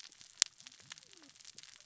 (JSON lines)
{"label": "biophony, cascading saw", "recorder": "SoundTrap 600 or HydroMoth"}